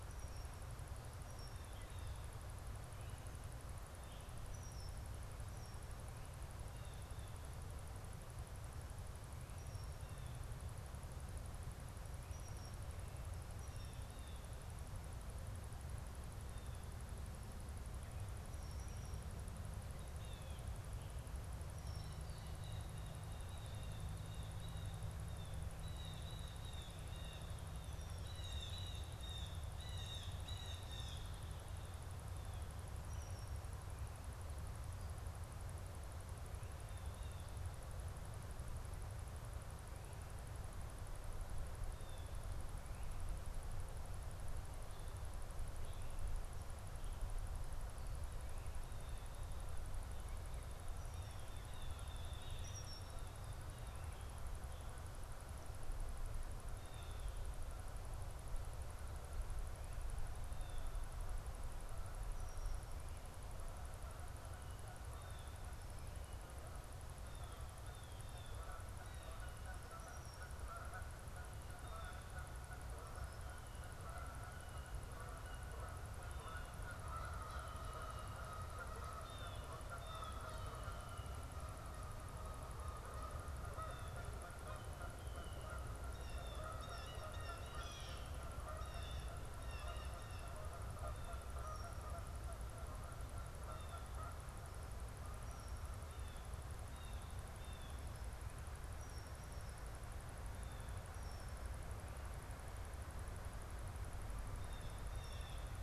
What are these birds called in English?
Red-winged Blackbird, Blue Jay, Canada Goose